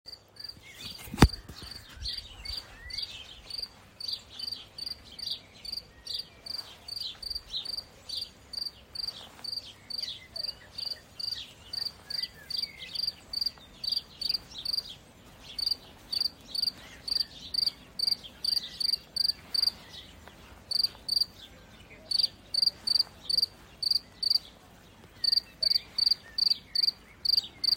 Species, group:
Gryllus campestris
Orthoptera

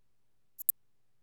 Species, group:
Eupholidoptera latens
Orthoptera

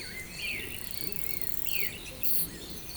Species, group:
Isophya speciosa
Orthoptera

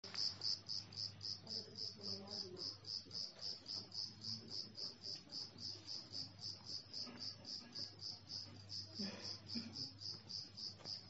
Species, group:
Eumodicogryllus bordigalensis
Orthoptera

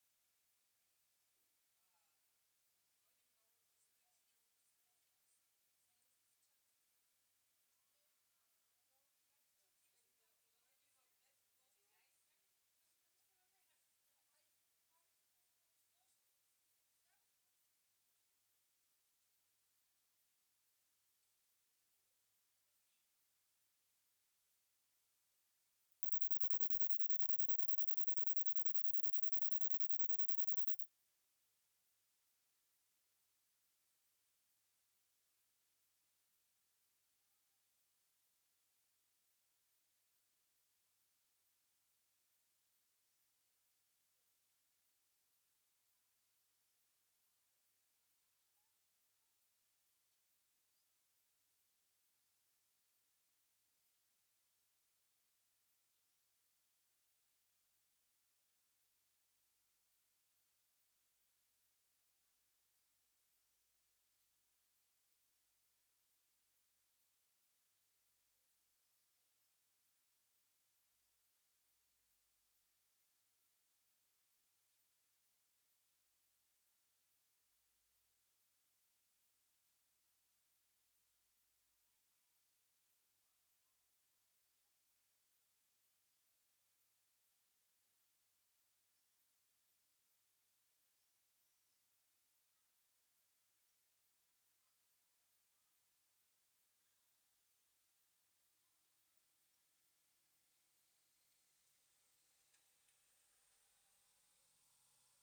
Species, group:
Poecilimon ebneri
Orthoptera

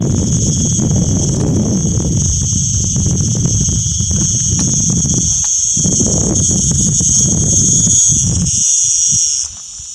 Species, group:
Cicada barbara
Cicadidae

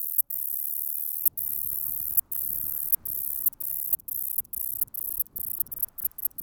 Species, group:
Polysarcus denticauda
Orthoptera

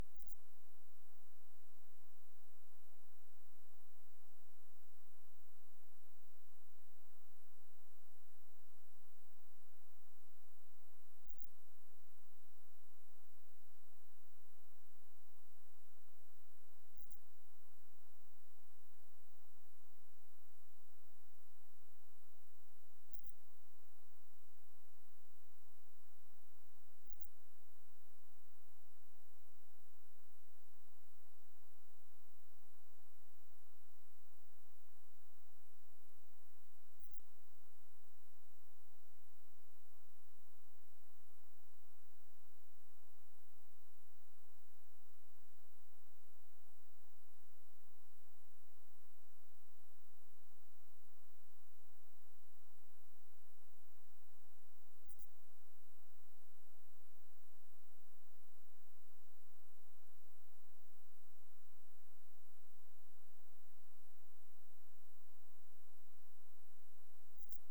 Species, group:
Incertana incerta
Orthoptera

